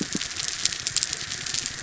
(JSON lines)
{"label": "biophony", "recorder": "SoundTrap 300"}